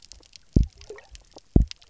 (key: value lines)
label: biophony, double pulse
recorder: SoundTrap 300